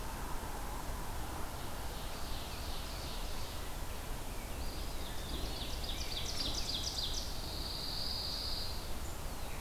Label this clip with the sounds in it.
Ovenbird, Rose-breasted Grosbeak, Eastern Wood-Pewee, Pine Warbler